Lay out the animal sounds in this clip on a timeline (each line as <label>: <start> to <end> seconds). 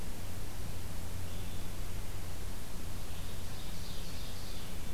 Red-eyed Vireo (Vireo olivaceus): 0.0 to 4.9 seconds
Ovenbird (Seiurus aurocapilla): 2.9 to 4.7 seconds